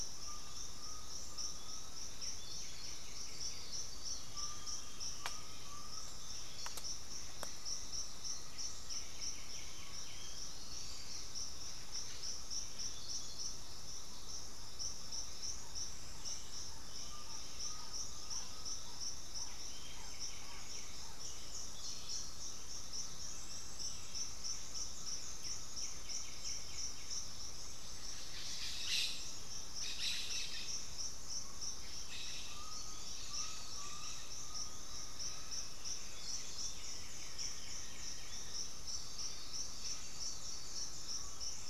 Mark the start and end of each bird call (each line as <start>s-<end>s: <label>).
0.0s-6.3s: Undulated Tinamou (Crypturellus undulatus)
2.0s-4.2s: White-winged Becard (Pachyramphus polychopterus)
3.5s-5.4s: Chestnut-winged Foliage-gleaner (Dendroma erythroptera)
8.3s-10.6s: White-winged Becard (Pachyramphus polychopterus)
16.8s-19.0s: Undulated Tinamou (Crypturellus undulatus)
19.1s-21.3s: White-winged Becard (Pachyramphus polychopterus)
22.0s-25.9s: Green-backed Trogon (Trogon viridis)
25.2s-27.5s: White-winged Becard (Pachyramphus polychopterus)
30.4s-35.6s: Undulated Tinamou (Crypturellus undulatus)
34.5s-39.0s: unidentified bird
36.3s-38.5s: White-winged Becard (Pachyramphus polychopterus)
39.0s-41.6s: Green-backed Trogon (Trogon viridis)